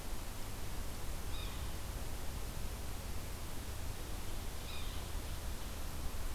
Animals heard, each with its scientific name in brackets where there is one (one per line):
Yellow-bellied Sapsucker (Sphyrapicus varius)